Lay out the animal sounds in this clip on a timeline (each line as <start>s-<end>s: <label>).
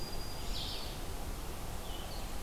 0.0s-0.9s: Black-throated Green Warbler (Setophaga virens)
0.0s-2.4s: Blue-headed Vireo (Vireo solitarius)
0.0s-2.4s: Red-eyed Vireo (Vireo olivaceus)